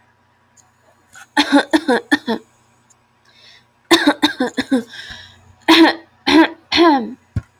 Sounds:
Cough